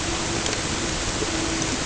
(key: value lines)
label: ambient
recorder: HydroMoth